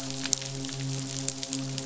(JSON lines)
{"label": "biophony, midshipman", "recorder": "SoundTrap 500"}